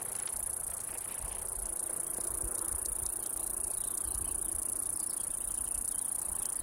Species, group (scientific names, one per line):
Okanagana bella
Cicadidae